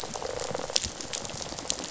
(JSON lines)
{"label": "biophony, rattle response", "recorder": "SoundTrap 500"}